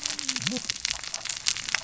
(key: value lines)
label: biophony, cascading saw
recorder: SoundTrap 600 or HydroMoth